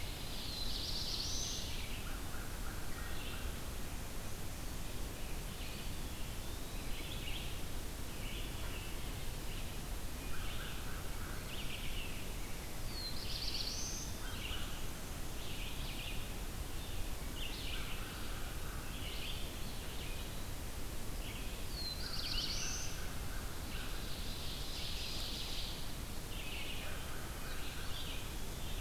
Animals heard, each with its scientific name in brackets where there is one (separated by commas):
Ovenbird (Seiurus aurocapilla), Black-throated Blue Warbler (Setophaga caerulescens), American Crow (Corvus brachyrhynchos), Wood Thrush (Hylocichla mustelina), Eastern Wood-Pewee (Contopus virens), Red-eyed Vireo (Vireo olivaceus)